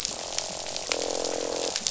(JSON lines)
{"label": "biophony, croak", "recorder": "SoundTrap 500"}